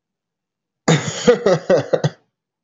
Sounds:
Laughter